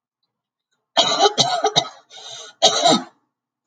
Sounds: Cough